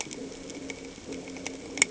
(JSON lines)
{"label": "anthrophony, boat engine", "recorder": "HydroMoth"}